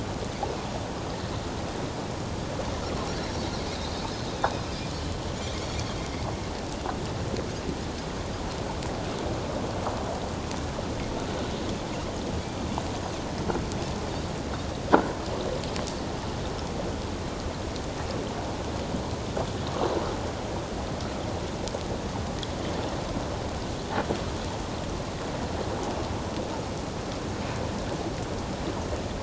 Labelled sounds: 3.7	4.0	Pacific white-sided dolphin, 3.6 to 4.1 kHz
4.7	4.9	Pacific white-sided dolphin, 4.7 to 4.8 kHz

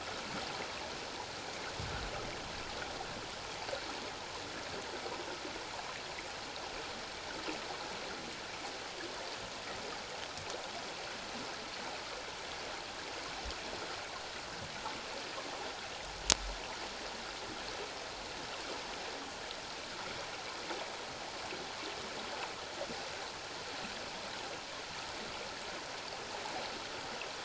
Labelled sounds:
1.4	1.7	water noise, 2.1 to 2.5 kHz

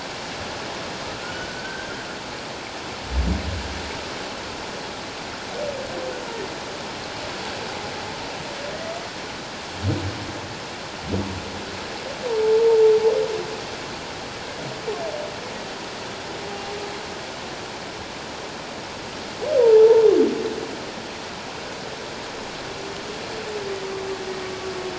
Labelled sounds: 1.2	1.9	humpback whale, 1.4 to 1.6 kHz
12.4	12.8	humpback whale, 0.84 to 0.97 kHz
19.6	20.0	humpback whale, 0.81 to 1.0 kHz

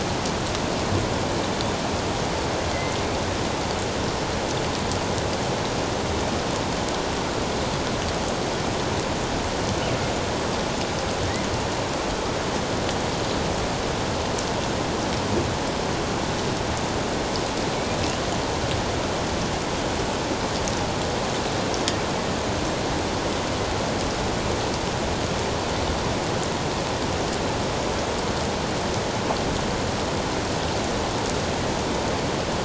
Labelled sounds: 2.7	3.0	killer whale, northern resident, 1.9 to 2.1 kHz

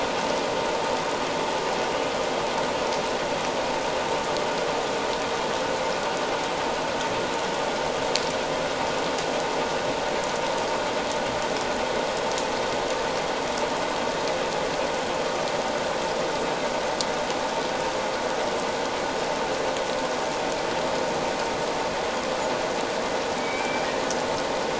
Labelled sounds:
23.4	23.9	humpback whale, 2.2 to 2.4 kHz

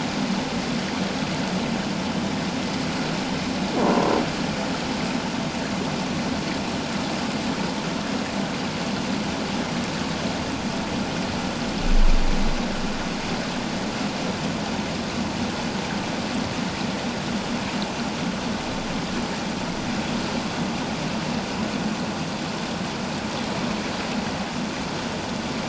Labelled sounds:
3.8	4.1	croaking sound likely from a nearby submerged object, 0.91 to 1.1 kHz

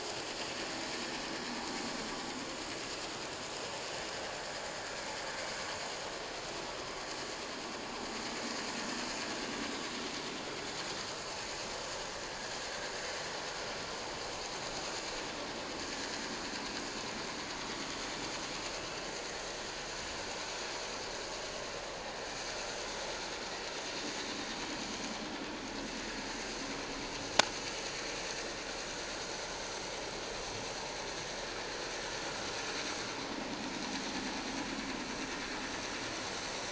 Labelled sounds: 15.8	16.1	vessel noise, 1.6 to 1.8 kHz

